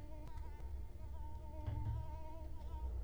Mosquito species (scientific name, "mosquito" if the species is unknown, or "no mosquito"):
Culex quinquefasciatus